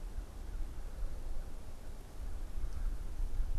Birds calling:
Red-bellied Woodpecker (Melanerpes carolinus)
American Crow (Corvus brachyrhynchos)

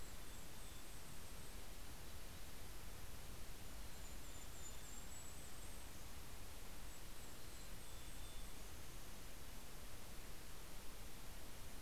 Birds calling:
Mountain Chickadee (Poecile gambeli)
Golden-crowned Kinglet (Regulus satrapa)

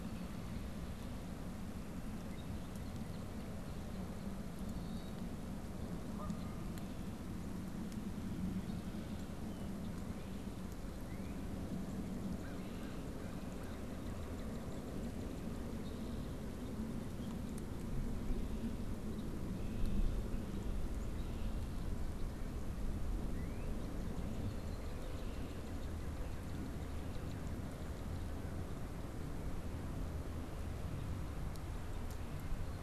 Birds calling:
Northern Cardinal (Cardinalis cardinalis)
Red-winged Blackbird (Agelaius phoeniceus)
American Crow (Corvus brachyrhynchos)
Canada Goose (Branta canadensis)

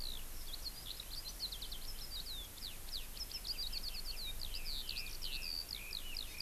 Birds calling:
Red-billed Leiothrix (Leiothrix lutea)
Eurasian Skylark (Alauda arvensis)

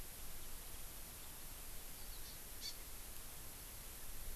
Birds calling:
Hawaii Amakihi (Chlorodrepanis virens)

